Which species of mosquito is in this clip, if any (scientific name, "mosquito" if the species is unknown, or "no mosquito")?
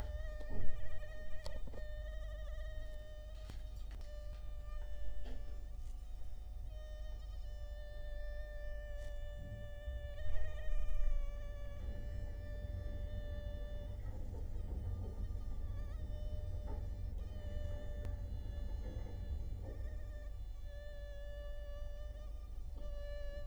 Culex quinquefasciatus